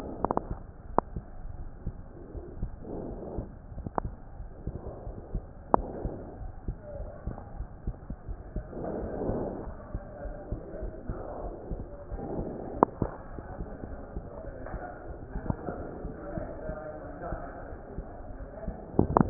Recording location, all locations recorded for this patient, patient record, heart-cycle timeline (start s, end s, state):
aortic valve (AV)
aortic valve (AV)+pulmonary valve (PV)+tricuspid valve (TV)+mitral valve (MV)
#Age: Child
#Sex: Male
#Height: 130.0 cm
#Weight: 30.4 kg
#Pregnancy status: False
#Murmur: Absent
#Murmur locations: nan
#Most audible location: nan
#Systolic murmur timing: nan
#Systolic murmur shape: nan
#Systolic murmur grading: nan
#Systolic murmur pitch: nan
#Systolic murmur quality: nan
#Diastolic murmur timing: nan
#Diastolic murmur shape: nan
#Diastolic murmur grading: nan
#Diastolic murmur pitch: nan
#Diastolic murmur quality: nan
#Outcome: Abnormal
#Campaign: 2015 screening campaign
0.00	4.80	unannotated
4.80	5.04	diastole
5.04	5.16	S1
5.16	5.30	systole
5.30	5.46	S2
5.46	5.72	diastole
5.72	5.90	S1
5.90	6.02	systole
6.02	6.16	S2
6.16	6.40	diastole
6.40	6.52	S1
6.52	6.64	systole
6.64	6.78	S2
6.78	6.98	diastole
6.98	7.12	S1
7.12	7.24	systole
7.24	7.38	S2
7.38	7.56	diastole
7.56	7.68	S1
7.68	7.86	systole
7.86	7.98	S2
7.98	8.28	diastole
8.28	8.38	S1
8.38	8.54	systole
8.54	8.66	S2
8.66	8.92	diastole
8.92	9.10	S1
9.10	9.26	systole
9.26	9.42	S2
9.42	9.64	diastole
9.64	9.76	S1
9.76	9.90	systole
9.90	10.04	S2
10.04	10.26	diastole
10.26	10.38	S1
10.38	10.48	systole
10.48	10.62	S2
10.62	10.82	diastole
10.82	10.96	S1
10.96	11.08	systole
11.08	11.20	S2
11.20	11.42	diastole
11.42	11.54	S1
11.54	11.70	systole
11.70	11.86	S2
11.86	12.10	diastole
12.10	12.22	S1
12.22	12.34	systole
12.34	12.48	S2
12.48	12.72	diastole
12.72	12.82	S1
12.82	12.98	systole
12.98	13.12	S2
13.12	13.34	diastole
13.34	13.46	S1
13.46	13.58	systole
13.58	13.70	S2
13.70	13.90	diastole
13.90	14.00	S1
14.00	14.14	systole
14.14	14.26	S2
14.26	14.46	diastole
14.46	14.56	S1
14.56	14.72	systole
14.72	14.82	S2
14.82	15.08	diastole
15.08	19.30	unannotated